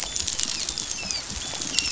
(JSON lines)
{"label": "biophony, dolphin", "recorder": "SoundTrap 500"}